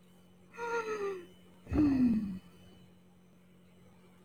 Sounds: Sigh